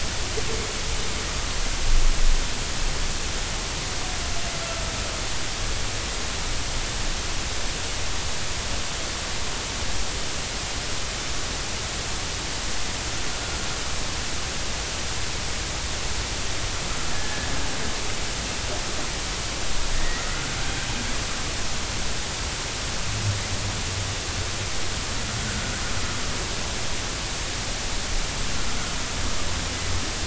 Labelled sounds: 17.1	17.5	humpback whale, 1.6 to 1.8 kHz
19.9	20.3	humpback whale, 1.7 to 2.0 kHz

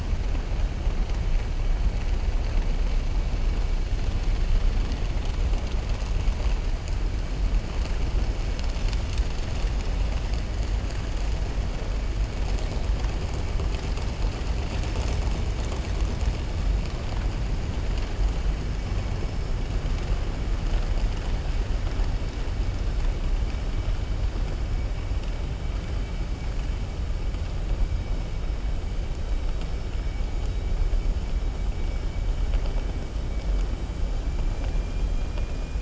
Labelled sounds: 34.5	35.2	vessel noise, 1.5 to 4.0 kHz

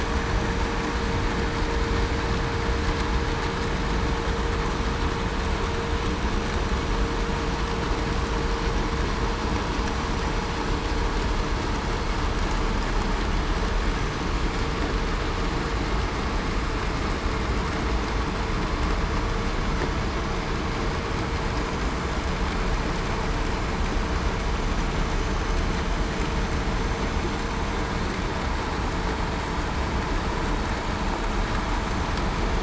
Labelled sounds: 13.9	14.3	vessel noise, 6.0 to 6.1 kHz

